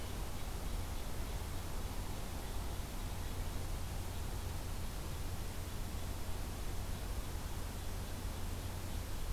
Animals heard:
forest ambience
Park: Acadia National Park